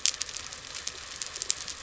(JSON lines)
{"label": "biophony", "recorder": "SoundTrap 300"}
{"label": "anthrophony, boat engine", "recorder": "SoundTrap 300"}